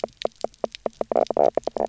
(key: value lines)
label: biophony, knock croak
recorder: SoundTrap 300